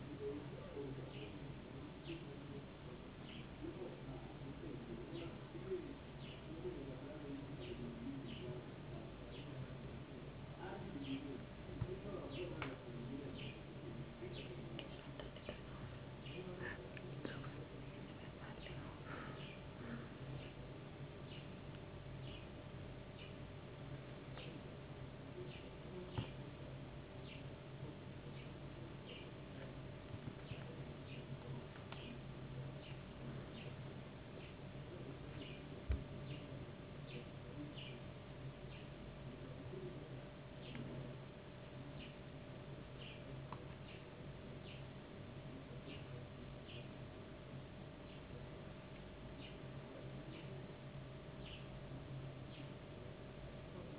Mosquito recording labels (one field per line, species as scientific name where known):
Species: no mosquito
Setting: insect culture